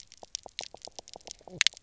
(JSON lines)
{"label": "biophony, knock croak", "recorder": "SoundTrap 300"}